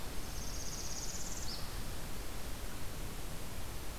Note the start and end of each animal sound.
[0.00, 1.75] Northern Parula (Setophaga americana)

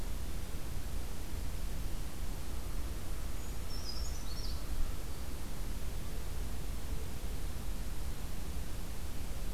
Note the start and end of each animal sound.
[3.09, 5.02] American Crow (Corvus brachyrhynchos)
[3.27, 4.66] Brown Creeper (Certhia americana)

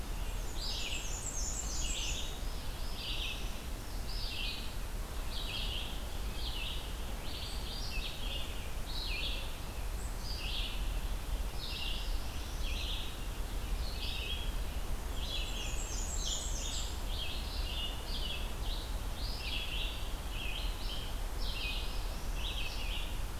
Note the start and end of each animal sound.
[0.00, 2.33] Black-and-white Warbler (Mniotilta varia)
[0.32, 23.39] Red-eyed Vireo (Vireo olivaceus)
[2.39, 3.81] Northern Parula (Setophaga americana)
[11.72, 12.93] Northern Parula (Setophaga americana)
[15.04, 17.15] Black-and-white Warbler (Mniotilta varia)
[21.27, 22.97] Northern Parula (Setophaga americana)

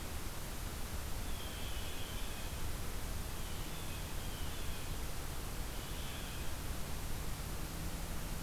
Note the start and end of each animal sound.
[1.16, 2.61] Blue Jay (Cyanocitta cristata)
[3.31, 5.03] Blue Jay (Cyanocitta cristata)
[5.67, 6.59] Blue Jay (Cyanocitta cristata)

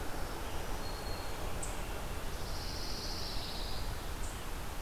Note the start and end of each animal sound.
[0.00, 1.50] Black-throated Green Warbler (Setophaga virens)
[0.00, 4.81] Eastern Chipmunk (Tamias striatus)
[2.26, 4.01] Pine Warbler (Setophaga pinus)

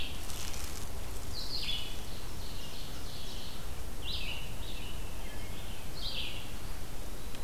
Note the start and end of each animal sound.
[0.00, 7.43] Red-eyed Vireo (Vireo olivaceus)
[1.64, 3.54] Ovenbird (Seiurus aurocapilla)
[4.80, 5.87] Wood Thrush (Hylocichla mustelina)
[6.44, 7.43] Eastern Wood-Pewee (Contopus virens)

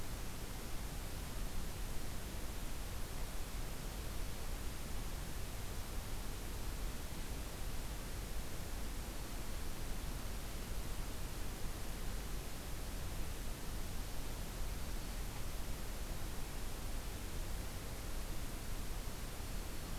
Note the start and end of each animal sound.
[9.01, 9.70] Black-throated Green Warbler (Setophaga virens)
[19.36, 19.99] Black-throated Green Warbler (Setophaga virens)

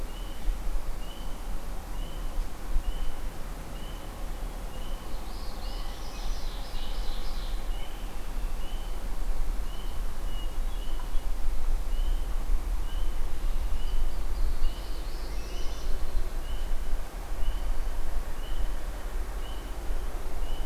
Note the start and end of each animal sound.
[4.98, 6.47] Northern Parula (Setophaga americana)
[5.76, 7.62] Ovenbird (Seiurus aurocapilla)
[7.65, 8.62] Red-winged Blackbird (Agelaius phoeniceus)
[13.70, 16.38] Red-winged Blackbird (Agelaius phoeniceus)
[14.56, 15.96] Northern Parula (Setophaga americana)

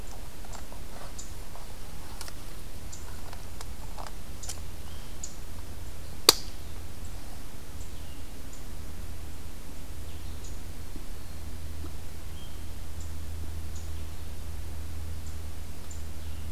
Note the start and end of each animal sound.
[9.99, 10.50] Blue-headed Vireo (Vireo solitarius)

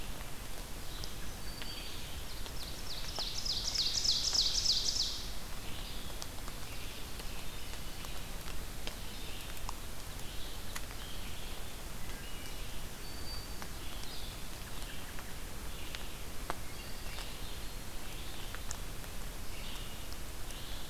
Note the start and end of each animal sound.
[0.00, 20.89] Red-eyed Vireo (Vireo olivaceus)
[0.70, 2.20] Black-throated Green Warbler (Setophaga virens)
[2.02, 5.50] Ovenbird (Seiurus aurocapilla)
[11.77, 12.81] Wood Thrush (Hylocichla mustelina)
[12.63, 13.71] Black-throated Green Warbler (Setophaga virens)
[16.28, 17.39] Wood Thrush (Hylocichla mustelina)

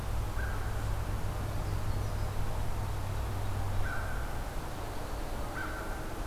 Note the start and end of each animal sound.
[0.21, 0.93] American Crow (Corvus brachyrhynchos)
[3.74, 4.26] American Crow (Corvus brachyrhynchos)
[5.54, 6.26] American Crow (Corvus brachyrhynchos)

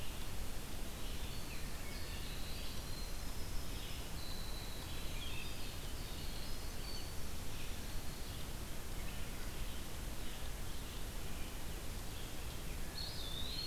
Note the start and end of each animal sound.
[0.00, 13.67] Red-eyed Vireo (Vireo olivaceus)
[0.13, 7.34] Winter Wren (Troglodytes hiemalis)
[1.56, 2.32] Wood Thrush (Hylocichla mustelina)
[12.62, 13.67] Eastern Wood-Pewee (Contopus virens)

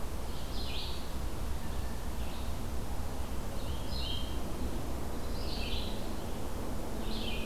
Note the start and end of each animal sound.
[0.20, 7.45] Red-eyed Vireo (Vireo olivaceus)
[1.50, 2.21] Blue Jay (Cyanocitta cristata)

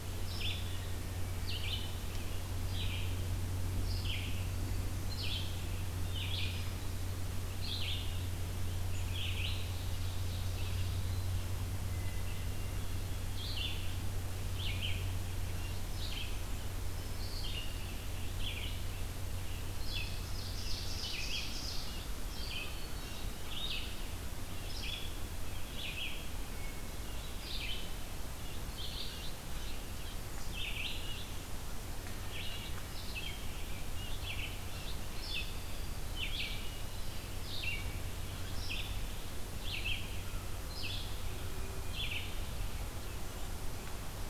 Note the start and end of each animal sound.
[0.00, 37.81] Red-eyed Vireo (Vireo olivaceus)
[0.83, 1.71] Hermit Thrush (Catharus guttatus)
[9.45, 11.16] Ovenbird (Seiurus aurocapilla)
[11.87, 13.29] Hermit Thrush (Catharus guttatus)
[20.09, 21.89] Ovenbird (Seiurus aurocapilla)
[22.25, 23.39] Hermit Thrush (Catharus guttatus)
[26.51, 27.63] Hermit Thrush (Catharus guttatus)
[36.43, 37.56] Hermit Thrush (Catharus guttatus)
[38.35, 42.48] Red-eyed Vireo (Vireo olivaceus)

